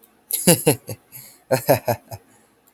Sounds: Laughter